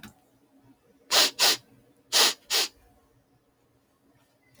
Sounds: Sniff